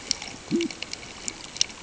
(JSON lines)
{"label": "ambient", "recorder": "HydroMoth"}